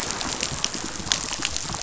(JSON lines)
{"label": "biophony, damselfish", "recorder": "SoundTrap 500"}